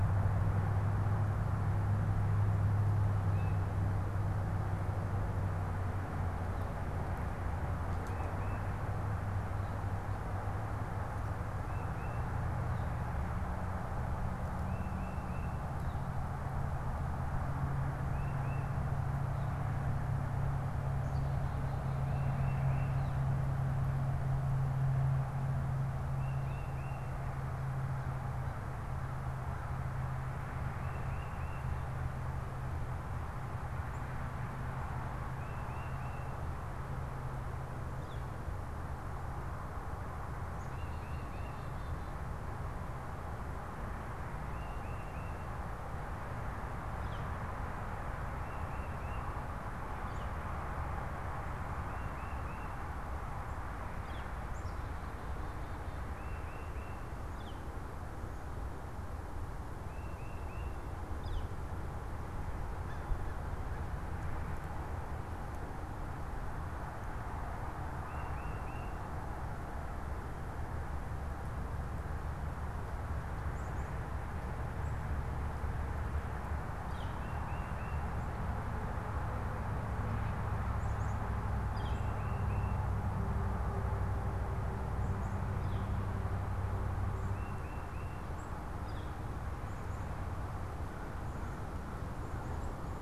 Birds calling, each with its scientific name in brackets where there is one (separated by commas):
Northern Flicker (Colaptes auratus), Tufted Titmouse (Baeolophus bicolor), Black-capped Chickadee (Poecile atricapillus), American Crow (Corvus brachyrhynchos)